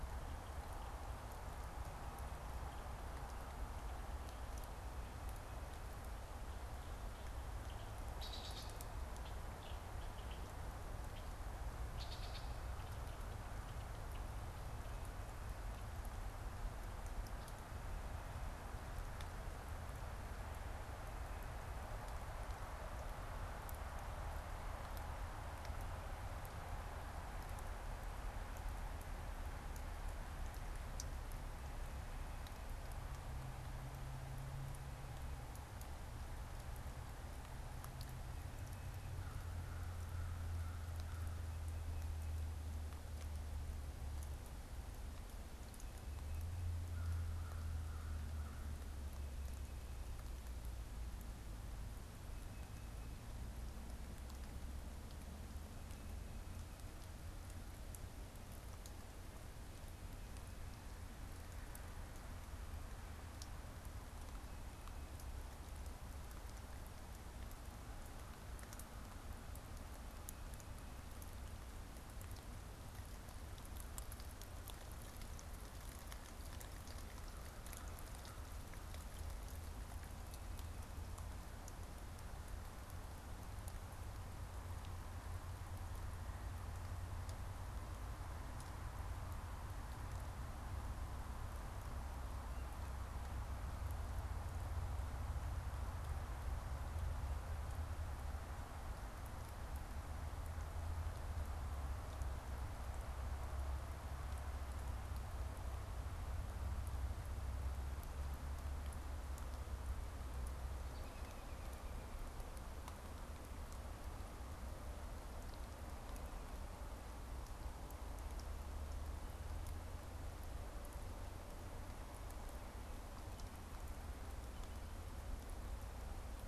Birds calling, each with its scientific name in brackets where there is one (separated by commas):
American Crow (Corvus brachyrhynchos), American Robin (Turdus migratorius), Red-winged Blackbird (Agelaius phoeniceus), Tufted Titmouse (Baeolophus bicolor)